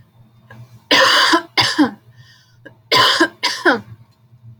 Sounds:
Cough